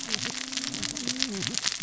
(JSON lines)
{"label": "biophony, cascading saw", "recorder": "SoundTrap 600 or HydroMoth"}